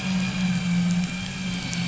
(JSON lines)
{"label": "anthrophony, boat engine", "recorder": "SoundTrap 500"}